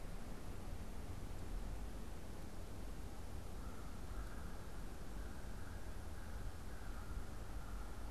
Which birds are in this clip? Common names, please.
American Crow